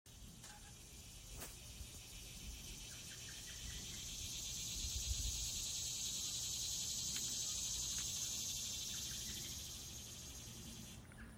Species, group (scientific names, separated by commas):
Neotibicen tibicen, Cicadidae